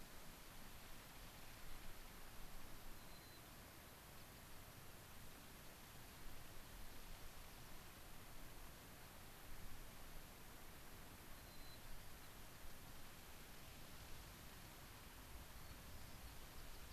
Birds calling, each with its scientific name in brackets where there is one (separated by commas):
White-crowned Sparrow (Zonotrichia leucophrys)